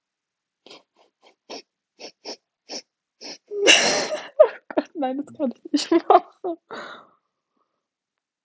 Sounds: Sniff